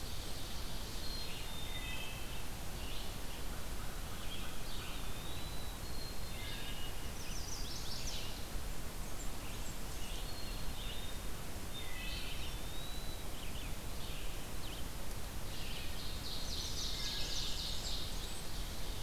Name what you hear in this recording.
Blackburnian Warbler, Ovenbird, Red-eyed Vireo, Wood Thrush, Eastern Wood-Pewee, Black-capped Chickadee, Chestnut-sided Warbler